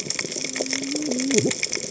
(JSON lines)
{"label": "biophony, cascading saw", "recorder": "HydroMoth"}